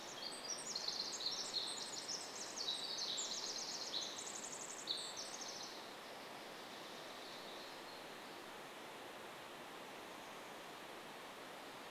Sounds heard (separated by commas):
warbler song, Pacific Wren song